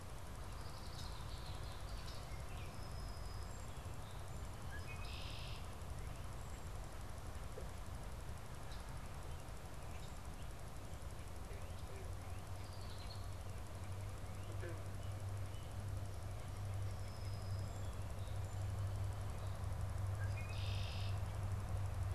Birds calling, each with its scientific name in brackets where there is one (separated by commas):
Baltimore Oriole (Icterus galbula), Red-winged Blackbird (Agelaius phoeniceus), Song Sparrow (Melospiza melodia)